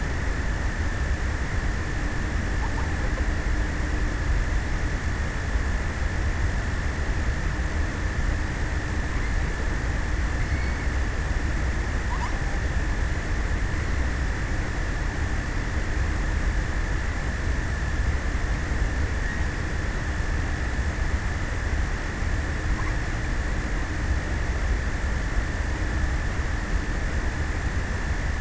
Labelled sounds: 2.0	3.7	killer whale, offshore, 0.35 to 1.5 kHz
11.6	13.2	killer whale, offshore, 0.37 to 2.8 kHz

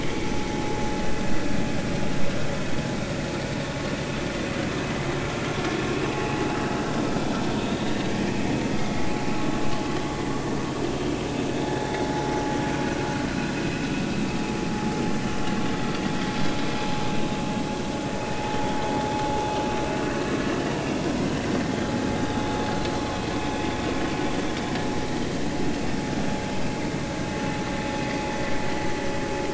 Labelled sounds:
0.0	0.3	vessel noise, 2.0 to 2.4 kHz
6.1	6.4	vessel noise, 0.80 to 0.90 kHz
7.7	8.0	vessel noise, 3.6 to 3.9 kHz
8.7	9.0	vessel noise, 2.0 to 2.2 kHz

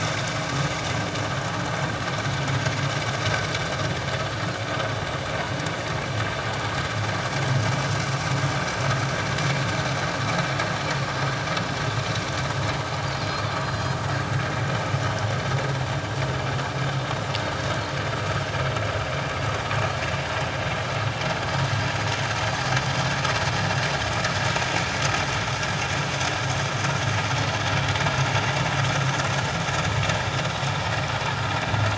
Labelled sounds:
13.6	14.0	Pacific white-sided dolphin, 4.0 to 5.1 kHz

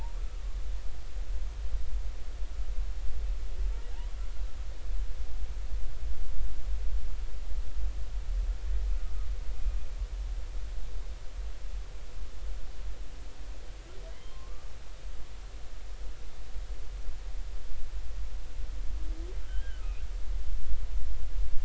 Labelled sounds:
0.2	0.4	humpback whale, 1.2 to 1.3 kHz
14.1	14.7	humpback whale, 0.99 to 3.2 kHz
19.4	19.8	humpback whale, 1.4 to 3.3 kHz

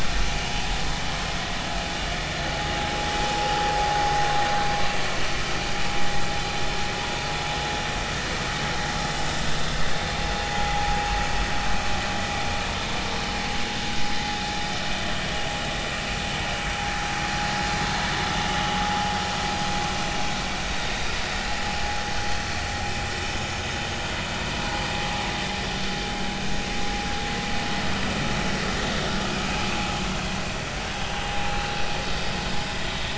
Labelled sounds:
10.7	11.0	vessel noise, 0.80 to 0.96 kHz

